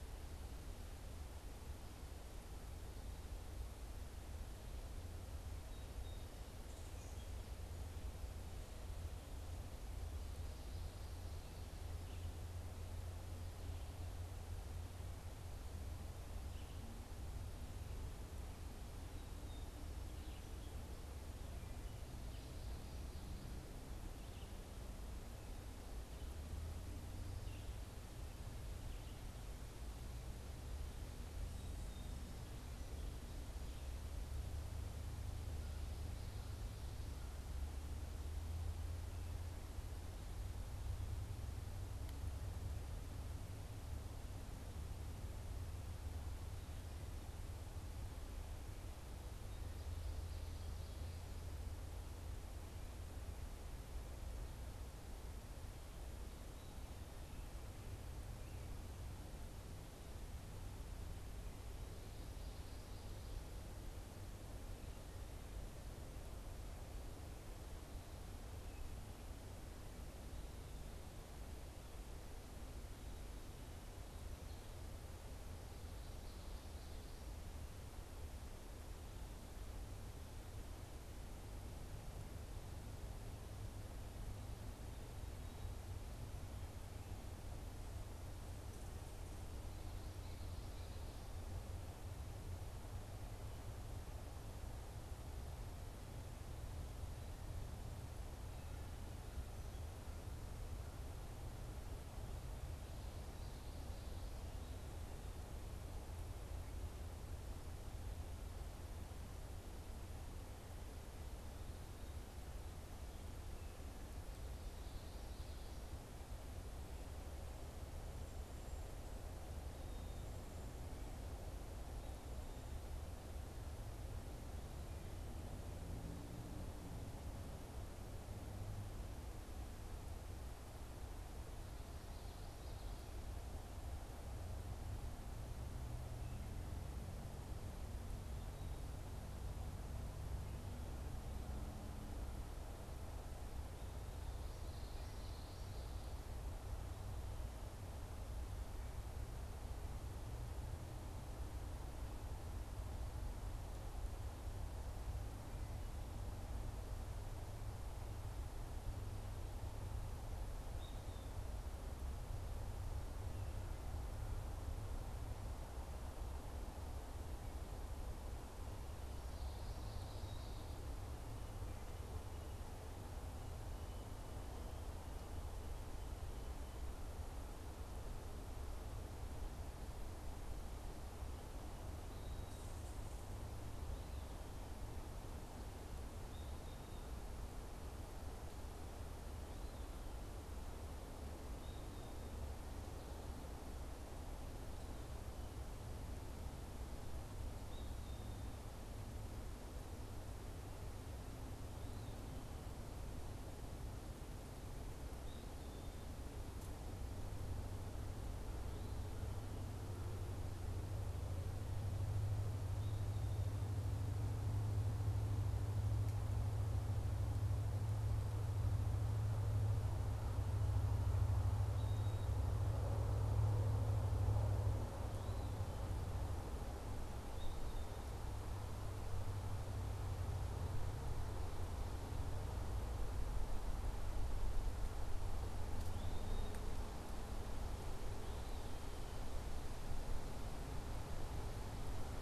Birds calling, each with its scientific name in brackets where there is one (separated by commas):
Common Yellowthroat (Geothlypis trichas), Eastern Wood-Pewee (Contopus virens), Song Sparrow (Melospiza melodia)